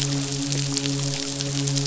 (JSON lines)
{"label": "biophony, midshipman", "recorder": "SoundTrap 500"}